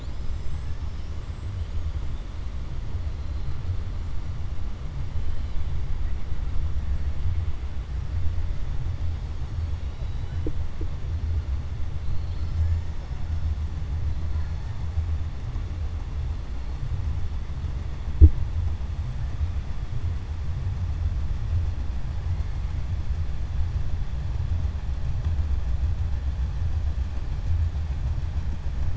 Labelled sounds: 9.8	10.4	killer whale, 2.9 to 4.9 kHz

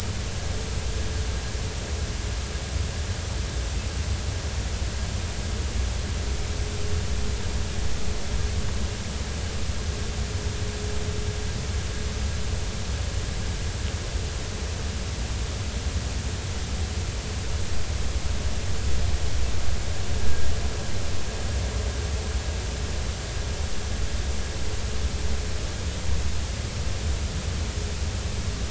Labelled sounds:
20.2	20.5	vessel noise, 1.6 to 1.7 kHz

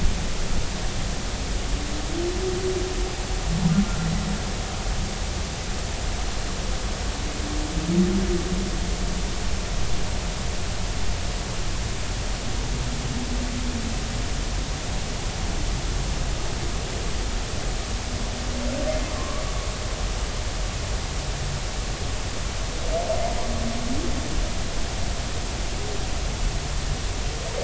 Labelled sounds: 19.1	19.4	humpback whale, 1.0 to 1.2 kHz

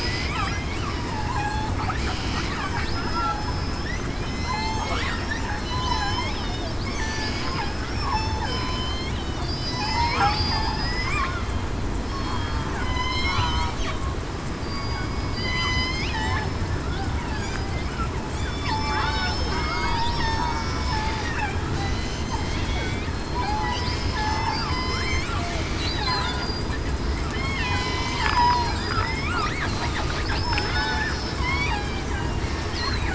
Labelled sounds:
1.4	1.7	killer whale, southern resident, 0.80 to 4.4 kHz
2.6	2.9	killer whale, southern resident, 5.1 to 5.2 kHz
3.3	3.8	killer whale, southern resident, 5.16 to 5.23 kHz
4.2	6.0	killer whale, southern resident, 1.6 to 6.6 kHz
7.0	8.8	killer whale, southern resident, 0.80 to 5.6 kHz
9.4	11.1	killer whale, southern resident, 3.8 to 5.3 kHz
12.1	12.4	killer whale, southern resident, 4.3 to 4.4 kHz
12.8	13.4	killer whale, southern resident, 0.94 to 5.4 kHz
14.6	15.6	killer whale, southern resident, 2.2 to 5.1 kHz
16.0	16.6	killer whale, southern resident, 0.80 to 5.3 kHz
17.3	17.7	killer whale, southern resident, 4.7 to 5.0 kHz
18.3	20.5	killer whale, southern resident, 2.1 to 5.3 kHz
21.7	23.5	killer whale, southern resident, 2.0 to 4.3 kHz
24.0	25.1	killer whale, southern resident, 2.0 to 5.2 kHz
25.9	26.2	killer whale, southern resident, 4.5 to 4.9 kHz
27.3	29.3	killer whale, southern resident, 0.84 to 5.3 kHz
30.2	31.7	killer whale, southern resident, 0.96 to 5.4 kHz

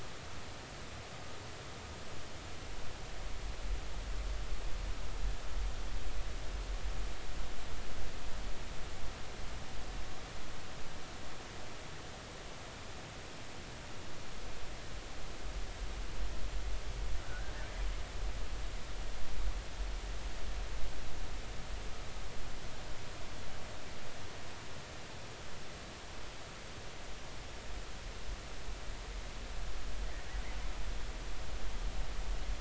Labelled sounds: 17.2	17.5	killer whale, Bigg's (transient), 1.4 to 1.6 kHz

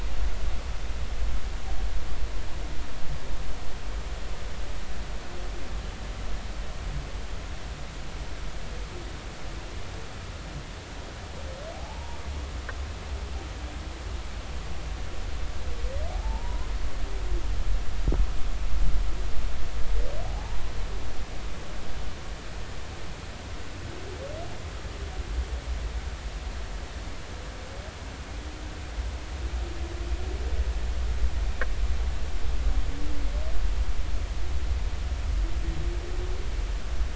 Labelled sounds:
11.7	12.2	humpback whale, 0.80 to 0.99 kHz
16.1	16.7	humpback whale, 0.80 to 1.1 kHz
20.3	20.6	humpback whale, 0.80 to 0.99 kHz

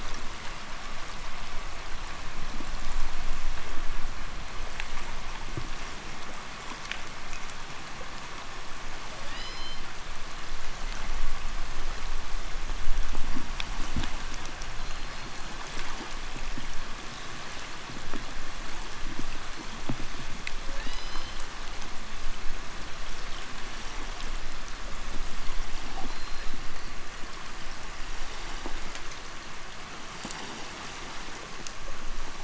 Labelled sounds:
6.7	7.1	undetermined biological sound, 1.2 to 7.3 kHz
9.0	10.0	killer whale, 1.2 to 7.6 kHz
14.7	15.6	killer whale, 3.9 to 4.8 kHz
20.6	21.5	killer whale, 1.4 to 6.4 kHz
25.9	27.0	killer whale, 3.8 to 4.9 kHz

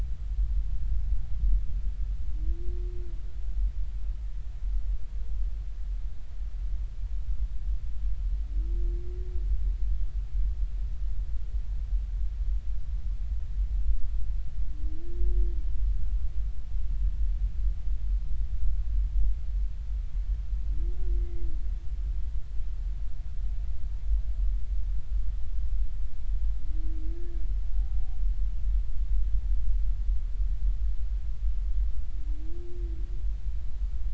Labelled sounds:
21.2	21.5	humpback whale, 2.0 to 2.1 kHz

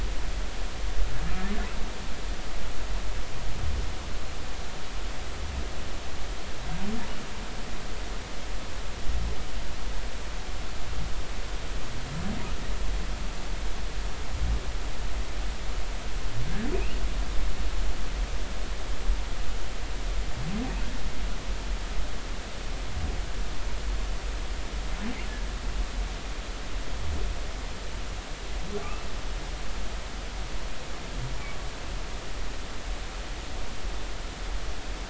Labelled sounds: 16.7	17.0	humpback whale, 2.3 to 3.0 kHz

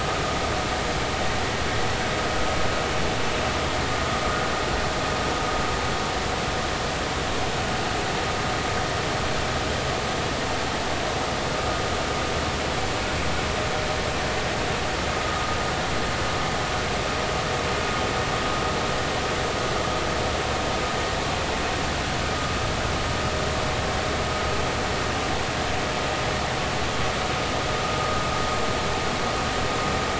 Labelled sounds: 15.2	15.6	vessel noise, 1.2 to 1.3 kHz

